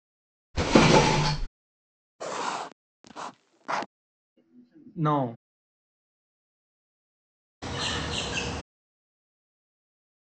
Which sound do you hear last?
bird